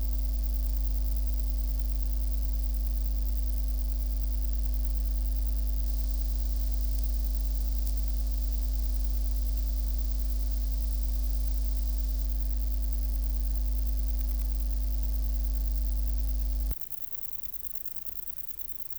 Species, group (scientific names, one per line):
Conocephalus fuscus
Orthoptera